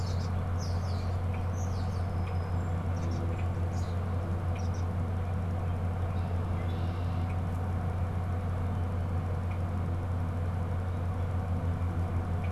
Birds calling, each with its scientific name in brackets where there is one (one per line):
Red-winged Blackbird (Agelaius phoeniceus)
European Starling (Sturnus vulgaris)